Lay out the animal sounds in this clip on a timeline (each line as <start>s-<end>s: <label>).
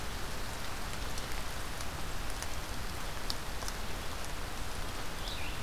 5.1s-5.6s: Red-eyed Vireo (Vireo olivaceus)